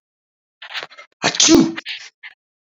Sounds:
Sneeze